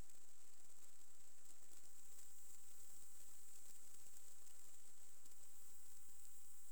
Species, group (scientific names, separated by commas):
Barbitistes serricauda, Orthoptera